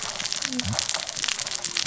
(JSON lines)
{"label": "biophony, cascading saw", "recorder": "SoundTrap 600 or HydroMoth"}